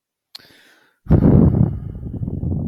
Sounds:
Sigh